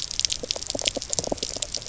{"label": "biophony", "recorder": "SoundTrap 300"}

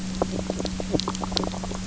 {"label": "biophony, knock croak", "recorder": "SoundTrap 300"}
{"label": "anthrophony, boat engine", "recorder": "SoundTrap 300"}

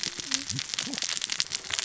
{"label": "biophony, cascading saw", "recorder": "SoundTrap 600 or HydroMoth"}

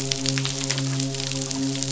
{"label": "biophony, midshipman", "recorder": "SoundTrap 500"}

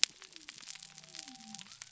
{"label": "biophony", "recorder": "SoundTrap 300"}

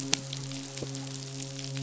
{"label": "biophony, midshipman", "recorder": "SoundTrap 500"}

